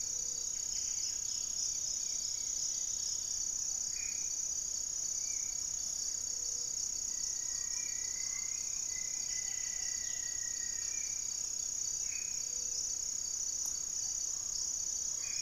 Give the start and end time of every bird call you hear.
[0.00, 0.67] Gray-fronted Dove (Leptotila rufaxilla)
[0.00, 11.37] Spot-winged Antshrike (Pygiptila stellaris)
[0.00, 15.41] Black-faced Antthrush (Formicarius analis)
[0.27, 3.47] Striped Woodcreeper (Xiphorhynchus obsoletus)
[0.37, 1.27] Buff-breasted Wren (Cantorchilus leucotis)
[1.57, 3.07] White-flanked Antwren (Myrmotherula axillaris)
[5.37, 6.07] unidentified bird
[5.97, 6.87] Gray-fronted Dove (Leptotila rufaxilla)
[6.97, 11.07] Rufous-fronted Antthrush (Formicarius rufifrons)
[7.17, 8.77] Gray-cowled Wood-Rail (Aramides cajaneus)
[8.97, 10.07] Buff-breasted Wren (Cantorchilus leucotis)
[12.17, 13.07] Gray-fronted Dove (Leptotila rufaxilla)
[13.47, 15.41] Gray-cowled Wood-Rail (Aramides cajaneus)

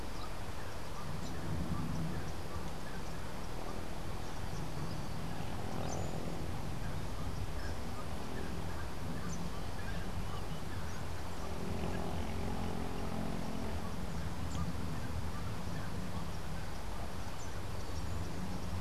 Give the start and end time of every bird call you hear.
[0.00, 8.36] Gray-cowled Wood-Rail (Aramides cajaneus)

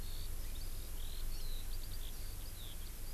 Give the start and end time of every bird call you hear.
[0.00, 3.14] Eurasian Skylark (Alauda arvensis)

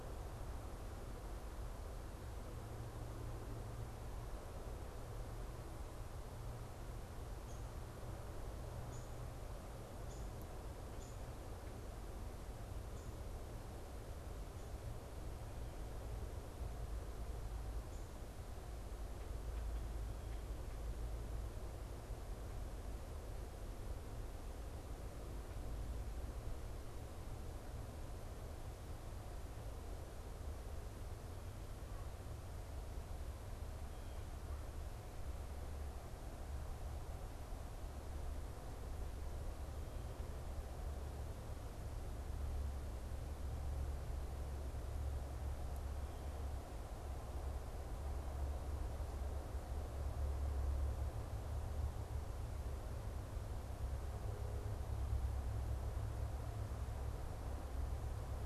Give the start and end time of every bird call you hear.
[7.27, 11.37] Downy Woodpecker (Dryobates pubescens)

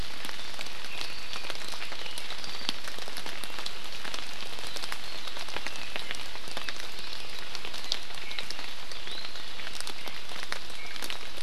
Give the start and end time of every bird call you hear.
[0.86, 1.56] Apapane (Himatione sanguinea)
[5.06, 6.76] Apapane (Himatione sanguinea)
[8.26, 8.56] Iiwi (Drepanis coccinea)
[8.96, 9.26] Iiwi (Drepanis coccinea)
[10.76, 10.96] Iiwi (Drepanis coccinea)

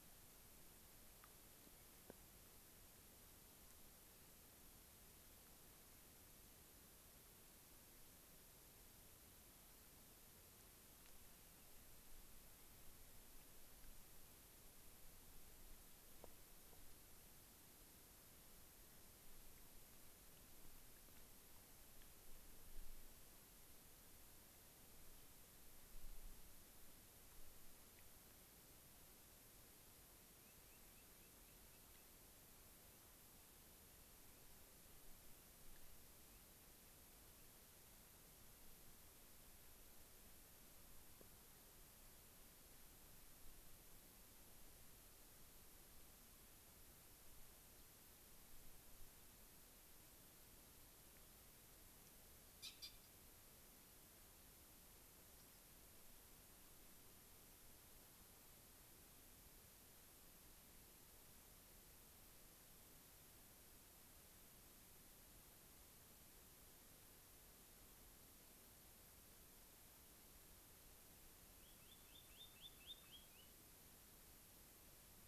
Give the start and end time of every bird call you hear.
[30.37, 32.17] Spotted Sandpiper (Actitis macularius)
[71.47, 73.57] Spotted Sandpiper (Actitis macularius)

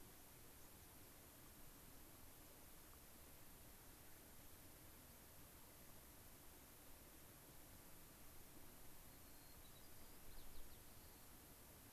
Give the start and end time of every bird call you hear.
[0.11, 1.21] White-crowned Sparrow (Zonotrichia leucophrys)
[9.01, 11.31] White-crowned Sparrow (Zonotrichia leucophrys)

